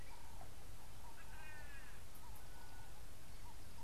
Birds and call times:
White-bellied Go-away-bird (Corythaixoides leucogaster): 1.4s

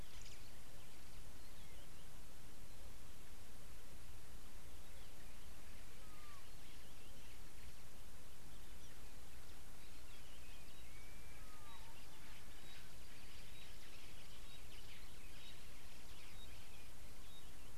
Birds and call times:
Pygmy Batis (Batis perkeo): 16.4s

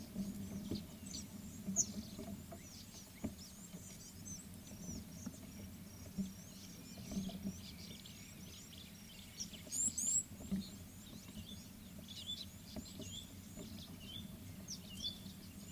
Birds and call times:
Tawny-flanked Prinia (Prinia subflava): 1.1s
Red-cheeked Cordonbleu (Uraeginthus bengalus): 9.8s
White-browed Robin-Chat (Cossypha heuglini): 14.2s

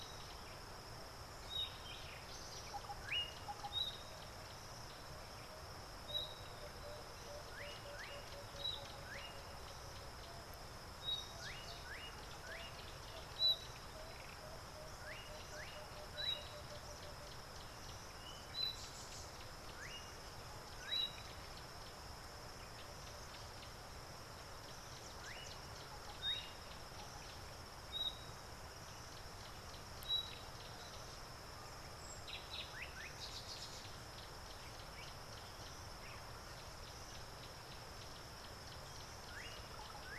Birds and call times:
Slate-colored Boubou (Laniarius funebris): 3.1s
Emerald-spotted Wood-Dove (Turtur chalcospilos): 6.9s
Thrush Nightingale (Luscinia luscinia): 18.6s

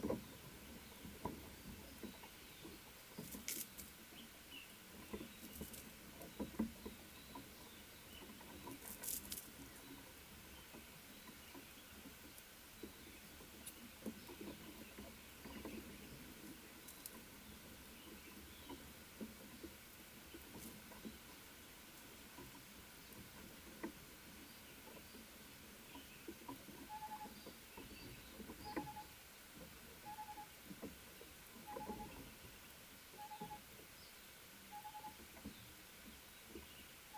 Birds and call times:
Tropical Boubou (Laniarius major): 33.4s

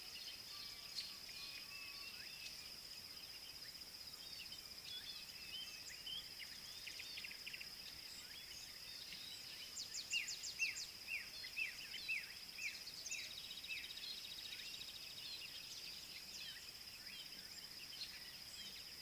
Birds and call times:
Black-backed Puffback (Dryoscopus cubla): 11.2s

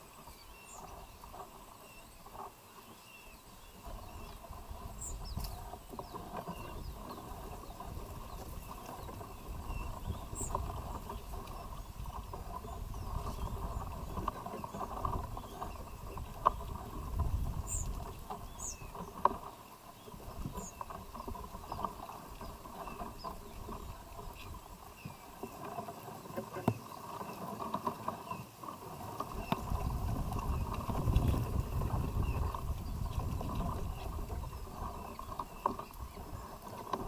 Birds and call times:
Kikuyu White-eye (Zosterops kikuyuensis): 1.8s, 9.7s, 18.7s, 28.2s
White-eyed Slaty-Flycatcher (Melaenornis fischeri): 10.3s, 18.5s

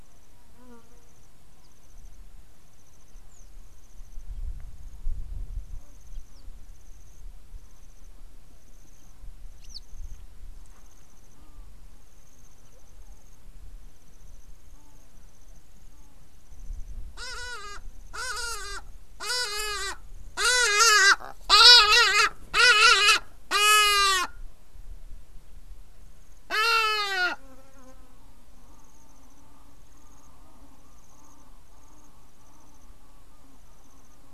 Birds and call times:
Hadada Ibis (Bostrychia hagedash): 20.7s

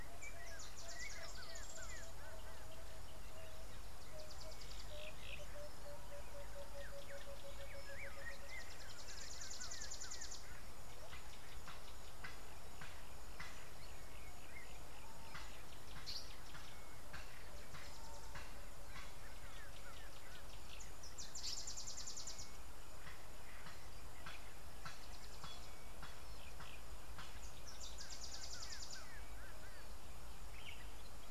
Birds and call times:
Yellow-bellied Greenbul (Chlorocichla flaviventris): 1.6s, 19.6s, 29.1s
Emerald-spotted Wood-Dove (Turtur chalcospilos): 6.2s
African Paradise-Flycatcher (Terpsiphone viridis): 16.1s
Variable Sunbird (Cinnyris venustus): 28.5s

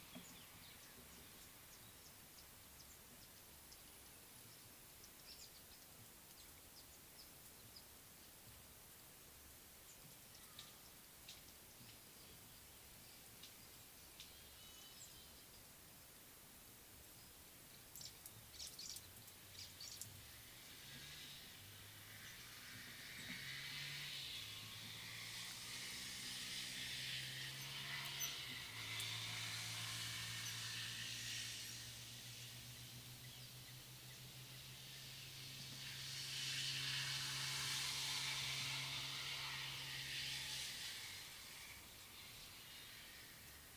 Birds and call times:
White-browed Sparrow-Weaver (Plocepasser mahali): 18.8s

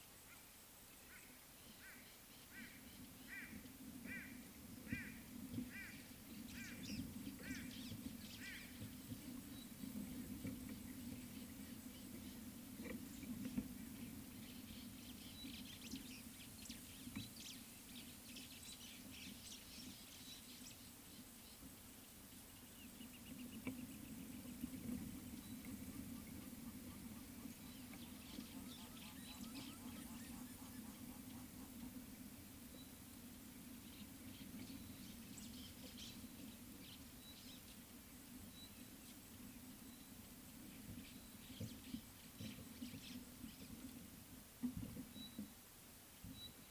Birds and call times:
White-bellied Go-away-bird (Corythaixoides leucogaster): 4.1s
White-browed Sparrow-Weaver (Plocepasser mahali): 7.7s, 17.5s
Pygmy Batis (Batis perkeo): 37.2s, 45.2s, 46.4s

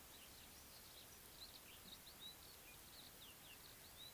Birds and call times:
Red-faced Crombec (Sylvietta whytii): 1.5s

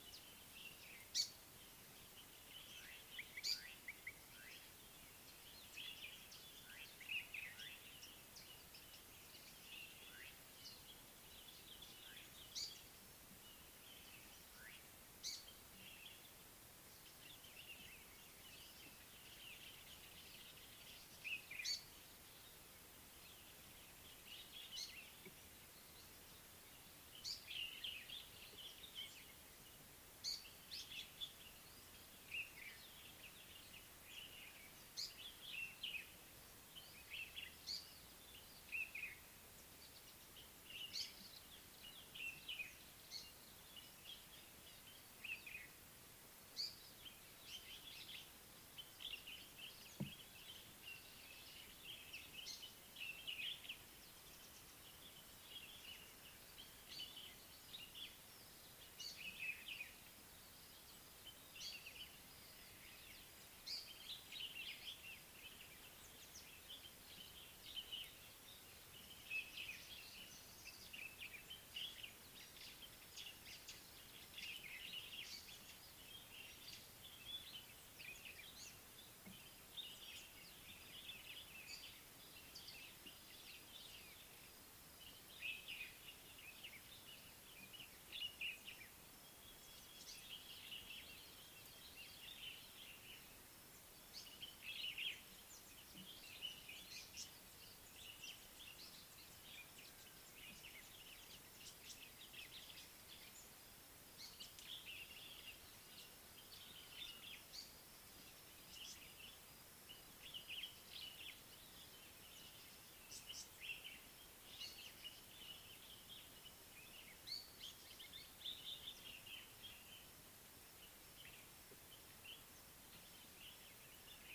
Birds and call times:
Common Bulbul (Pycnonotus barbatus): 35.6s, 59.5s, 85.5s, 94.8s, 107.0s, 113.6s, 118.5s
Mariqua Sunbird (Cinnyris mariquensis): 82.5s
Tawny-flanked Prinia (Prinia subflava): 97.2s, 113.1s

